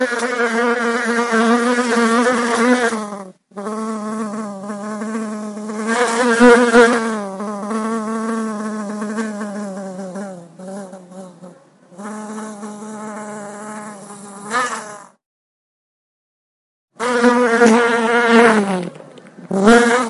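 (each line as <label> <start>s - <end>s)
A bee flies close, producing a loud humming noise with its wings. 0.0s - 15.3s
A bee flies close, producing a loud humming noise with its wings. 16.9s - 20.1s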